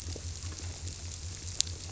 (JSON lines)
{"label": "biophony", "recorder": "SoundTrap 300"}